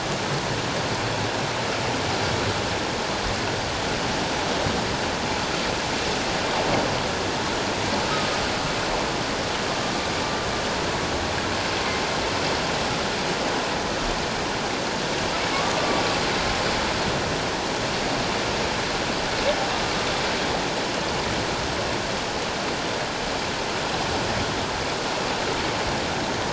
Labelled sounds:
15.5	15.8	humpback whale, 1.0 to 1.2 kHz

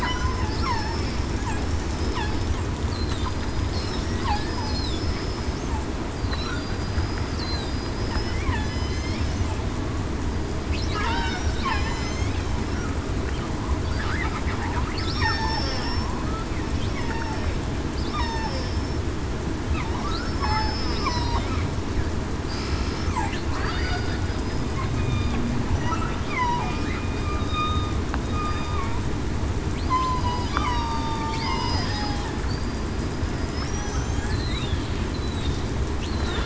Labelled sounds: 0.6	1.0	killer whale, southern resident, 0.82 to 5.5 kHz
3.2	3.7	killer whale, southern resident, 4.9 to 5.1 kHz
4.5	5.4	killer whale, southern resident, 5.1 to 5.3 kHz
6.5	7.9	killer whale, southern resident, 4.7 to 5.0 kHz
8.6	9.0	killer whale, southern resident, 4.9 to 5.2 kHz
10.9	11.3	killer whale, southern resident, 0.89 to 1.4 kHz
11.7	12.1	killer whale, southern resident, 4.0 to 4.1 kHz
15.2	15.6	killer whale, southern resident, 1.7 to 2.0 kHz
17.0	17.4	killer whale, southern resident, 0.84 to 0.96 kHz
18.2	19.0	killer whale, southern resident, 5.3 to 5.4 kHz
20.4	21.2	killer whale, southern resident, 4.6 to 5.3 kHz
23.6	24.7	killer whale, southern resident, 4.5 to 5.1 kHz
24.9	25.3	killer whale, southern resident, 2.4 to 2.5 kHz
26.3	26.7	killer whale, southern resident, 0.70 to 1.2 kHz
27.4	27.9	killer whale, southern resident, 1.2 to 3.8 kHz
29.9	30.2	killer whale, southern resident, 0.94 to 1.1 kHz
30.5	32.1	killer whale, southern resident, 0.87 to 5.1 kHz
32.4	32.9	killer whale, southern resident, 4.4 to 4.9 kHz
35.1	35.6	killer whale, southern resident, 3.6 to 4.2 kHz

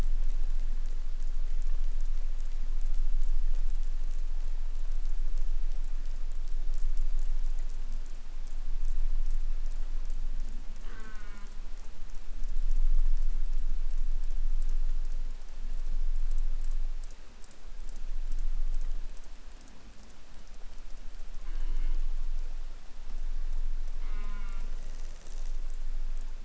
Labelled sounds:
10.8	11.6	killer whale, southern resident, J pod, call S04, 0.17 to 4.7 kHz
21.4	22.0	killer whale, southern resident, J pod, call S04, 0.17 to 4.7 kHz
24.0	24.7	killer whale, southern resident, J pod, call S04, 0.19 to 5.0 kHz

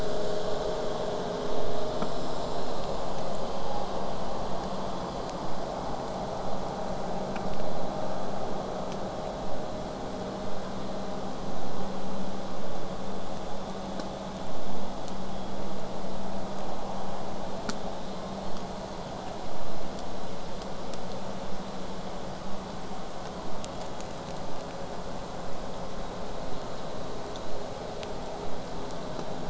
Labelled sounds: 3.1	4.0	killer whale, southern resident, J pod, 0.61 to 2.3 kHz

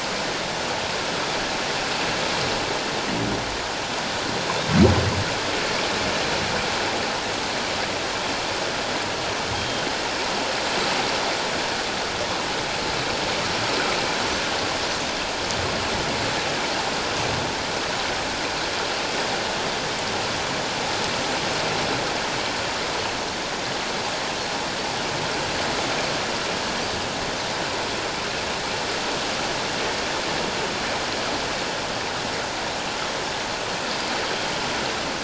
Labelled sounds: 9.5	9.9	Pacific white-sided dolphin, 3.1 to 3.3 kHz

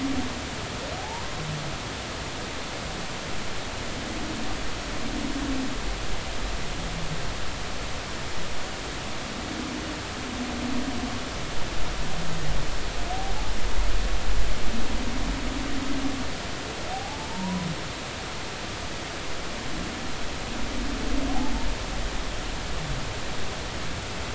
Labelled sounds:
1.0	1.2	humpback whale, 0.80 to 1.0 kHz
16.9	17.7	humpback whale, 0.80 to 1.0 kHz

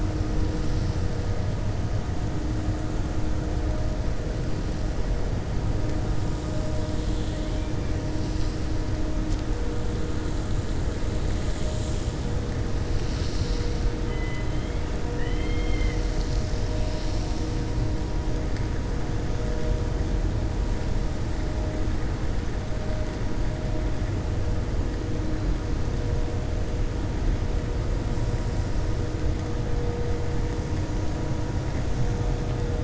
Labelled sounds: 15.1	16.0	killer whale, 1.1 to 3.2 kHz

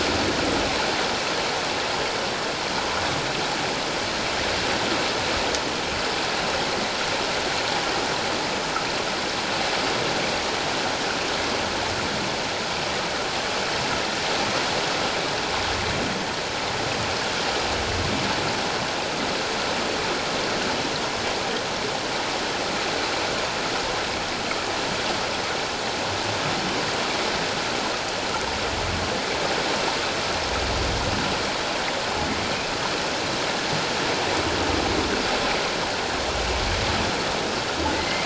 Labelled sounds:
37.9	38.2	humpback whale, 1.9 to 2.3 kHz

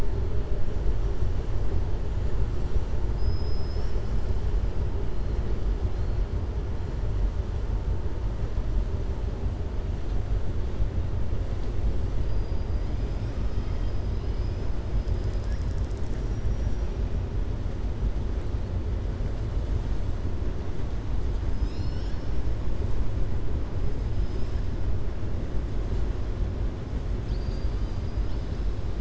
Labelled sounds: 3.0	4.3	killer whale, southern resident, 4.5 to 7.9 kHz

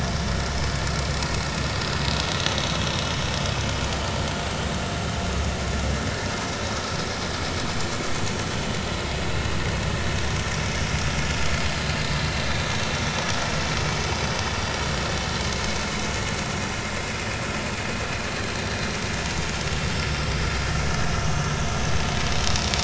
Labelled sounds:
9.3	9.5	vessel noise, 2.6 to 3.0 kHz
12.2	12.5	vessel noise, 4.0 to 4.2 kHz
17.0	17.2	vessel noise, 5.0 to 5.2 kHz

